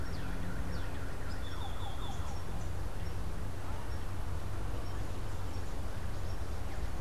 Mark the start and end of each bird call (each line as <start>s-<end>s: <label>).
1.2s-2.3s: Great-tailed Grackle (Quiscalus mexicanus)